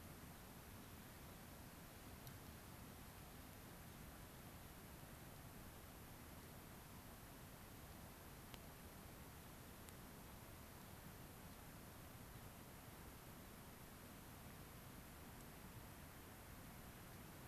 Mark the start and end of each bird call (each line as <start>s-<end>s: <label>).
11.4s-11.6s: Gray-crowned Rosy-Finch (Leucosticte tephrocotis)
12.3s-12.4s: Gray-crowned Rosy-Finch (Leucosticte tephrocotis)
13.4s-13.5s: Gray-crowned Rosy-Finch (Leucosticte tephrocotis)